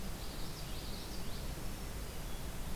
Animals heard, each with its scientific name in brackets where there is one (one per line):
Black-throated Green Warbler (Setophaga virens)
Common Yellowthroat (Geothlypis trichas)